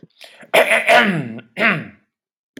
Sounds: Throat clearing